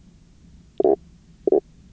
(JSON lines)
{"label": "biophony, knock croak", "recorder": "SoundTrap 300"}